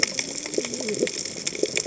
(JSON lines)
{"label": "biophony, cascading saw", "recorder": "HydroMoth"}